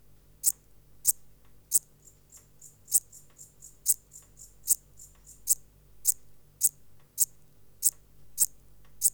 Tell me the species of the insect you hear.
Eupholidoptera garganica